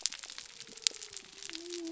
{"label": "biophony", "recorder": "SoundTrap 300"}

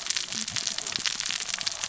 {"label": "biophony, cascading saw", "recorder": "SoundTrap 600 or HydroMoth"}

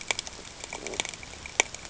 {"label": "ambient", "recorder": "HydroMoth"}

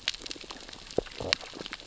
{"label": "biophony, sea urchins (Echinidae)", "recorder": "SoundTrap 600 or HydroMoth"}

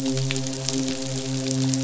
{"label": "biophony, midshipman", "recorder": "SoundTrap 500"}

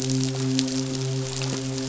{"label": "biophony, midshipman", "recorder": "SoundTrap 500"}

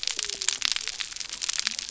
{"label": "biophony", "recorder": "SoundTrap 300"}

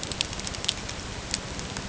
{"label": "ambient", "recorder": "HydroMoth"}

